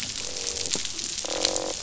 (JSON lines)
{"label": "biophony, croak", "recorder": "SoundTrap 500"}